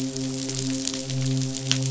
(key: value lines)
label: biophony, midshipman
recorder: SoundTrap 500